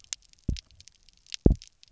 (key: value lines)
label: biophony, double pulse
recorder: SoundTrap 300